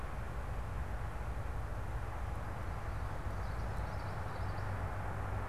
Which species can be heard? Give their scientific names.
Geothlypis trichas